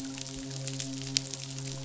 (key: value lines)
label: biophony, midshipman
recorder: SoundTrap 500